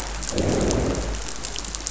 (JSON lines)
{"label": "biophony, growl", "recorder": "SoundTrap 500"}